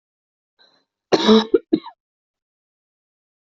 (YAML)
expert_labels:
- quality: good
  cough_type: dry
  dyspnea: false
  wheezing: false
  stridor: false
  choking: false
  congestion: false
  nothing: true
  diagnosis: healthy cough
  severity: pseudocough/healthy cough
age: 27
gender: female
respiratory_condition: false
fever_muscle_pain: false
status: symptomatic